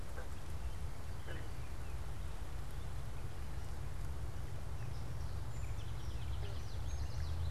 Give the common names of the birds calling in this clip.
Gray Catbird, Song Sparrow, Common Yellowthroat